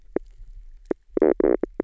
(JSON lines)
{"label": "biophony, knock croak", "recorder": "SoundTrap 300"}